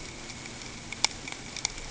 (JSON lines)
{"label": "ambient", "recorder": "HydroMoth"}